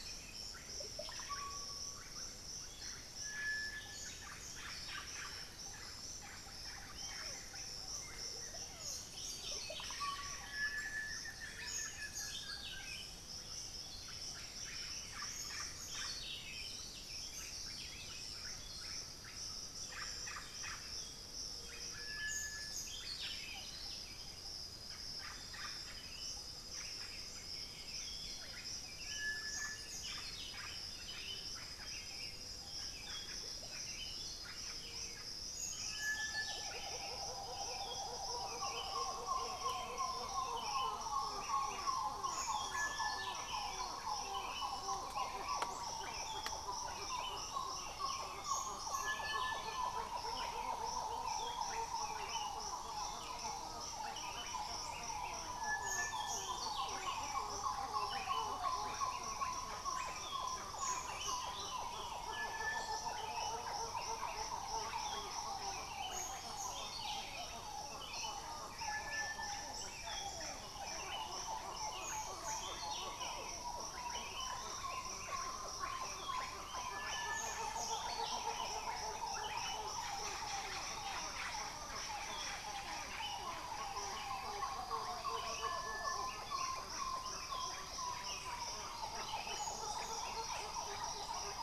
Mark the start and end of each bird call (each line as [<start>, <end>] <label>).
[0.00, 91.63] Buff-throated Saltator (Saltator maximus)
[0.00, 91.63] Russet-backed Oropendola (Psarocolius angustifrons)
[3.27, 12.56] unidentified bird
[6.87, 7.26] Bluish-fronted Jacamar (Galbula cyanescens)
[9.66, 13.06] Buff-throated Woodcreeper (Xiphorhynchus guttatus)
[18.16, 20.27] Undulated Tinamou (Crypturellus undulatus)
[26.66, 28.66] White-winged Becard (Pachyramphus polychopterus)